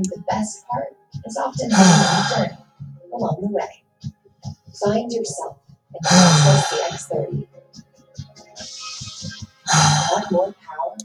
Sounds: Sigh